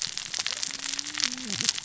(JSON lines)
{"label": "biophony, cascading saw", "recorder": "SoundTrap 600 or HydroMoth"}